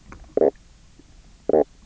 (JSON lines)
{"label": "biophony, knock croak", "recorder": "SoundTrap 300"}